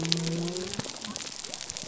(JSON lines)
{"label": "biophony", "recorder": "SoundTrap 300"}